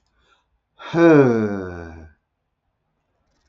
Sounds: Sigh